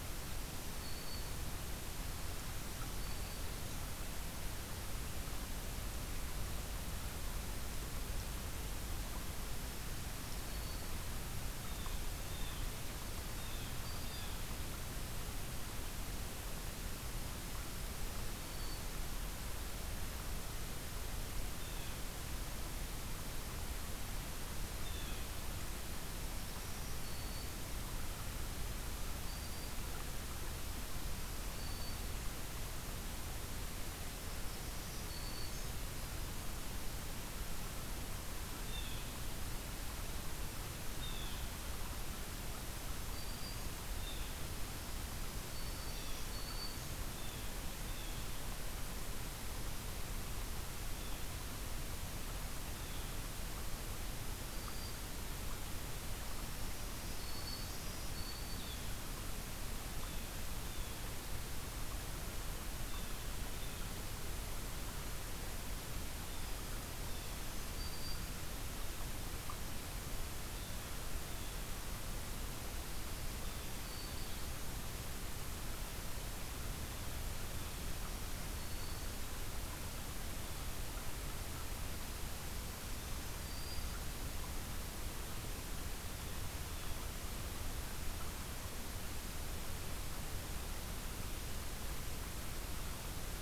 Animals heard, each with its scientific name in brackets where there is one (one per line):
Blue Jay (Cyanocitta cristata)
Black-throated Green Warbler (Setophaga virens)